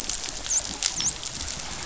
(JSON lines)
{"label": "biophony, dolphin", "recorder": "SoundTrap 500"}